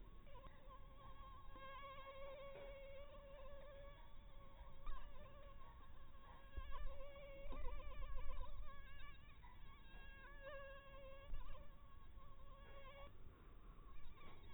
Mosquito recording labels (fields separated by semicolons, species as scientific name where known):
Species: mosquito; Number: one; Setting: cup